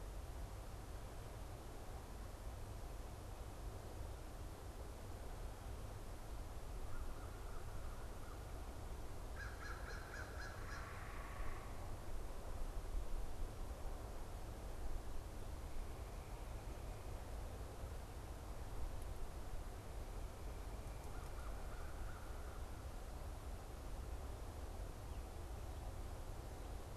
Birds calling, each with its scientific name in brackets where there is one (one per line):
American Crow (Corvus brachyrhynchos)
unidentified bird